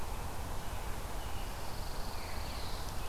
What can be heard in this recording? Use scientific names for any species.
Setophaga pinus, Catharus fuscescens